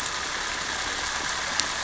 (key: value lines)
label: anthrophony, boat engine
recorder: SoundTrap 300